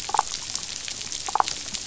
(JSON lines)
{"label": "biophony, damselfish", "recorder": "SoundTrap 500"}